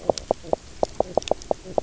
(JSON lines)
{"label": "biophony, knock croak", "recorder": "SoundTrap 300"}